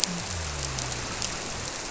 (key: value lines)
label: biophony
recorder: SoundTrap 300